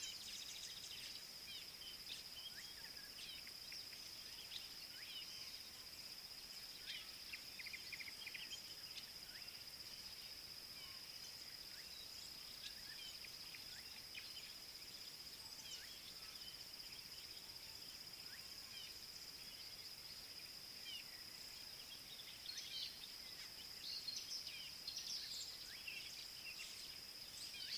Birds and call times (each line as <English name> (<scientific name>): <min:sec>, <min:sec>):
African Goshawk (Accipiter tachiro): 0:02.1, 0:06.9
Gray-backed Camaroptera (Camaroptera brevicaudata): 0:20.9